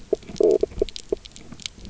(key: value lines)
label: biophony, knock croak
recorder: SoundTrap 300